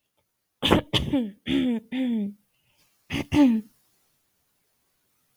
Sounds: Throat clearing